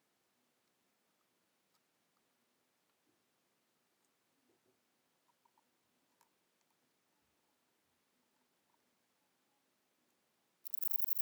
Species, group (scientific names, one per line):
Antaxius chopardi
Orthoptera